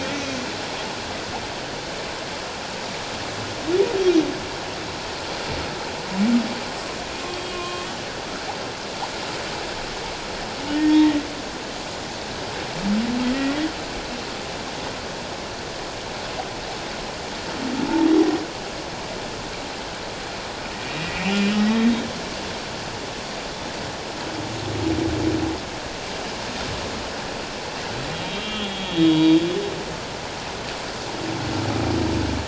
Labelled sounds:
7.3	7.9	humpback whale, 1.0 to 3.4 kHz
10.7	11.2	humpback whale, 1.8 to 2.0 kHz
21.0	21.8	humpback whale, 1.8 to 2.6 kHz
28.2	29.4	humpback whale, 2.7 to 3.5 kHz

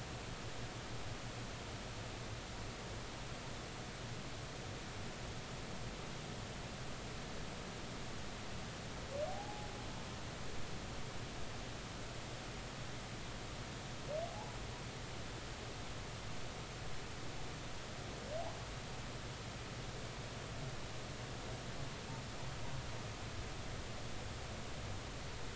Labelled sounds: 9.3	9.7	humpback whale, 0.80 to 0.90 kHz

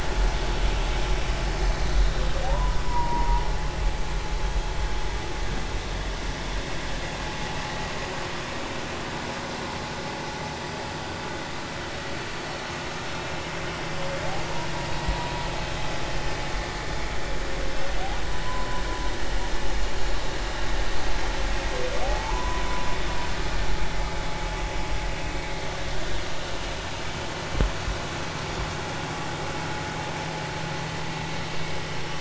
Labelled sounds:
1.8	3.4	humpback whale, 0.80 to 4.1 kHz
18.4	18.8	humpback whale, 0.96 to 1.1 kHz
22.0	23.0	humpback whale, 0.80 to 1.1 kHz

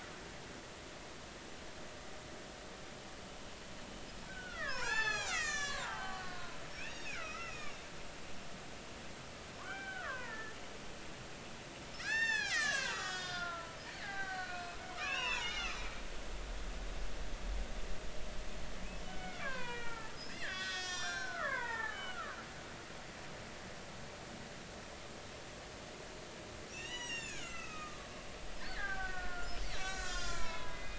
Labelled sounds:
4.3	7.8	killer whale, Bigg's (transient), 0.80 to 8.0 kHz
9.6	10.6	killer whale, Bigg's (transient), 0.90 to 2.4 kHz
11.9	16.0	killer whale, Bigg's (transient), 0.80 to 8.0 kHz
19.0	22.4	killer whale, Bigg's (transient), 0.80 to 7.7 kHz
26.7	28.1	killer whale, Bigg's (transient), 1.1 to 7.5 kHz
28.6	30.9	killer whale, Bigg's (transient), 0.80 to 7.9 kHz

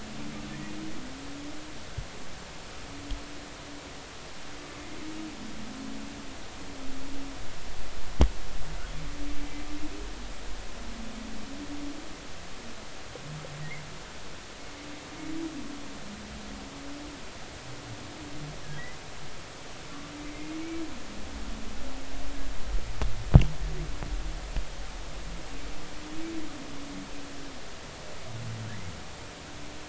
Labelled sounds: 0.5	0.7	humpback whale, 1.7 to 2.0 kHz

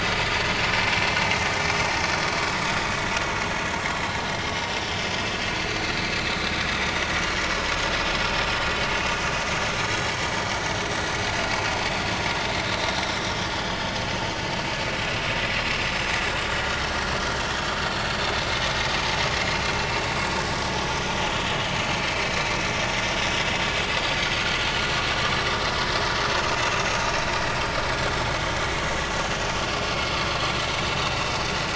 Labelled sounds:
0.2	0.5	vessel noise, 4.4 to 4.6 kHz
2.7	3.0	vessel noise, 3.4 to 3.8 kHz
13.6	13.8	vessel noise, 4.7 to 5.0 kHz
17.5	17.8	vessel noise, 3.2 to 3.5 kHz
23.9	24.3	vessel noise, 4.4 to 4.7 kHz

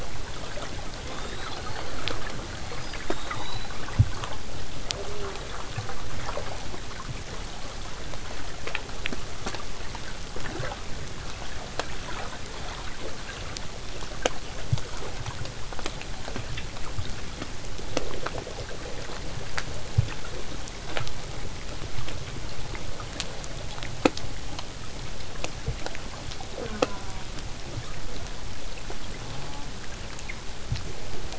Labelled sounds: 1.0	3.7	killer whale, southern resident, whistle, 0.21 to 8.0 kHz
26.5	27.3	killer whale, southern resident, J pod, call S04, 0.08 to 1.7 kHz
29.2	29.7	killer whale, southern resident, J pod, call S04, 0.15 to 1.5 kHz

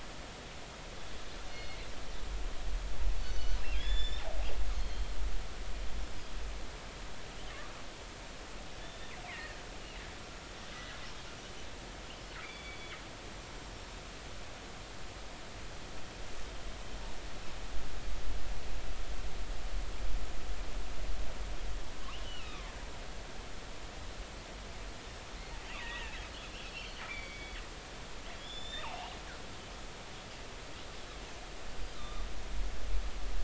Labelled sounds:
1.5	1.8	killer whale, northern resident, G clan, 2.1 to 4.4 kHz
3.2	4.2	killer whale, northern resident, G clan, 1.6 to 7.2 kHz
4.7	5.1	killer whale, northern resident, G clan, 3.1 to 4.4 kHz
6.0	6.3	killer whale, northern resident, G clan, 4.7 to 5.3 kHz
8.8	9.6	killer whale, northern resident, G clan, 1.6 to 3.7 kHz
12.4	12.9	killer whale, northern resident, G clan, GI subclan, call N23i, 2.0 to 3.6 kHz
22.2	22.7	killer whale, northern resident, G clan, 0.99 to 3.1 kHz
25.8	26.2	killer whale, northern resident, G clan, 1.6 to 3.0 kHz
26.6	27.6	killer whale, northern resident, G clan, 1.9 to 4.7 kHz
28.3	28.9	killer whale, northern resident, G clan, 3.2 to 7.2 kHz
31.9	32.3	killer whale, northern resident, G clan, 1.1 to 3.7 kHz

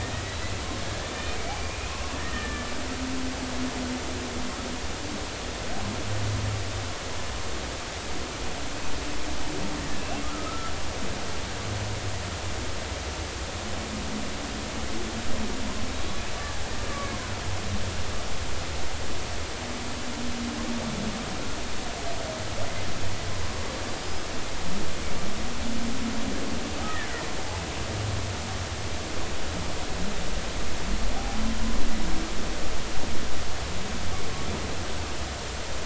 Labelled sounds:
0.3	0.6	killer whale, Bigg's (transient), 3.8 to 4.1 kHz
1.4	2.7	killer whale, Bigg's (transient), 1.1 to 2.5 kHz
10.0	10.7	killer whale, Bigg's (transient), 1.2 to 2.8 kHz
16.9	17.2	killer whale, Bigg's (transient), 2.1 to 2.3 kHz

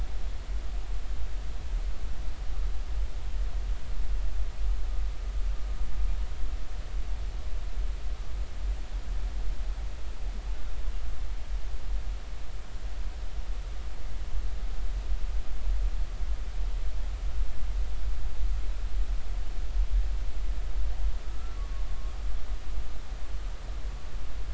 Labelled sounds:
21.6	21.8	humpback whale, 1.1 to 1.2 kHz

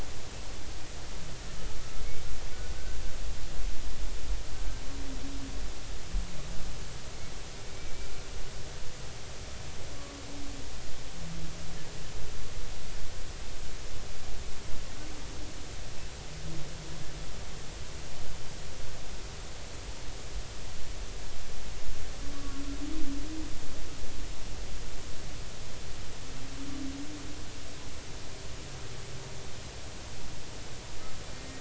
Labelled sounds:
4.5	4.8	humpback whale, 1.5 to 1.6 kHz
7.6	7.9	humpback whale, 2.2 to 2.4 kHz
31.3	31.5	humpback whale, 1.8 to 1.9 kHz

